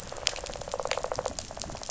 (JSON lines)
{"label": "biophony, rattle response", "recorder": "SoundTrap 500"}